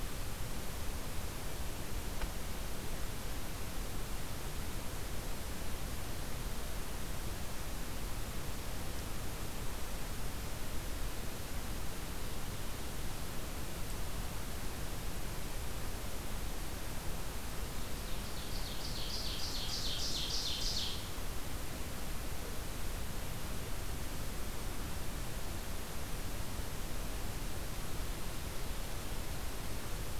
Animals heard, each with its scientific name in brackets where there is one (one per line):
Ovenbird (Seiurus aurocapilla)